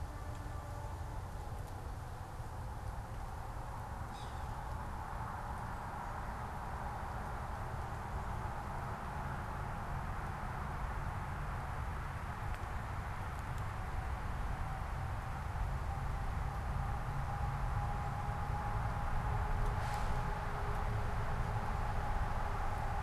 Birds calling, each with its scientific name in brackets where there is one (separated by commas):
Yellow-bellied Sapsucker (Sphyrapicus varius)